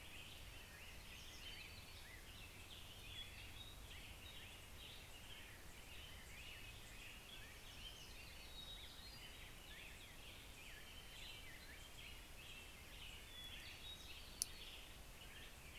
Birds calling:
Hermit Thrush (Catharus guttatus)
American Robin (Turdus migratorius)
Hermit Warbler (Setophaga occidentalis)
Western Tanager (Piranga ludoviciana)

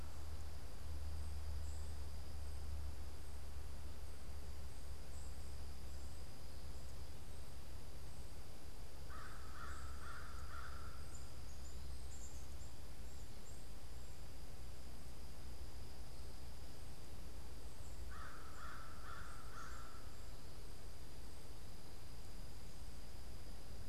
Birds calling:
Black-capped Chickadee (Poecile atricapillus)
American Crow (Corvus brachyrhynchos)

